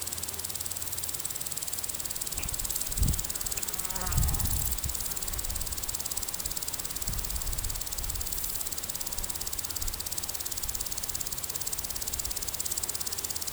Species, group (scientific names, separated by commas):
Chorthippus brunneus, Orthoptera